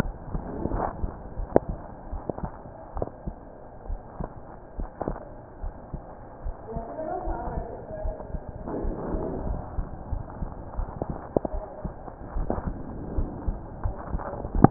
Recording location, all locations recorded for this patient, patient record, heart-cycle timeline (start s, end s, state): aortic valve (AV)
aortic valve (AV)+pulmonary valve (PV)+tricuspid valve (TV)+mitral valve (MV)
#Age: Child
#Sex: Male
#Height: 143.0 cm
#Weight: 34.2 kg
#Pregnancy status: False
#Murmur: Absent
#Murmur locations: nan
#Most audible location: nan
#Systolic murmur timing: nan
#Systolic murmur shape: nan
#Systolic murmur grading: nan
#Systolic murmur pitch: nan
#Systolic murmur quality: nan
#Diastolic murmur timing: nan
#Diastolic murmur shape: nan
#Diastolic murmur grading: nan
#Diastolic murmur pitch: nan
#Diastolic murmur quality: nan
#Outcome: Normal
#Campaign: 2015 screening campaign
0.00	1.36	unannotated
1.36	1.48	S1
1.48	1.68	systole
1.68	1.78	S2
1.78	2.10	diastole
2.10	2.24	S1
2.24	2.41	systole
2.41	2.52	S2
2.52	2.92	diastole
2.92	3.08	S1
3.08	3.24	systole
3.24	3.36	S2
3.36	3.88	diastole
3.88	4.00	S1
4.00	4.20	systole
4.20	4.30	S2
4.30	4.78	diastole
4.78	4.90	S1
4.90	5.08	systole
5.08	5.18	S2
5.18	5.61	diastole
5.61	5.76	S1
5.76	5.91	systole
5.91	6.02	S2
6.02	6.43	diastole
6.43	6.56	S1
6.56	6.73	systole
6.73	6.84	S2
6.84	7.24	diastole
7.24	7.40	S1
7.40	7.55	systole
7.55	7.66	S2
7.66	8.02	diastole
8.02	8.16	S1
8.16	8.31	systole
8.31	8.42	S2
8.42	8.76	diastole
8.76	8.96	S1
8.96	9.10	systole
9.10	9.24	S2
9.24	9.46	diastole
9.46	9.60	S1
9.60	9.76	systole
9.76	9.88	S2
9.88	10.10	diastole
10.10	10.22	S1
10.22	10.40	systole
10.40	10.50	S2
10.50	10.76	diastole
10.76	10.88	S1
10.88	11.07	systole
11.07	11.18	S2
11.18	11.51	diastole
11.51	11.64	S1
11.64	11.82	systole
11.82	11.94	S2
11.94	12.34	diastole
12.34	12.50	S1
12.50	12.65	systole
12.65	12.78	S2
12.78	13.16	diastole
13.16	13.30	S1
13.30	13.46	systole
13.46	13.58	S2
13.58	13.82	diastole
13.82	13.96	S1
13.96	14.11	systole
14.11	14.22	S2
14.22	14.70	unannotated